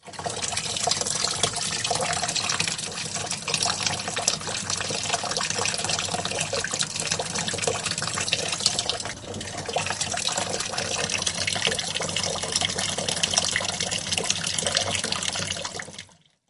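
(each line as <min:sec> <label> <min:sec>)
0:00.0 A strong flow of water. 0:15.4
0:15.4 Water flow stops. 0:16.5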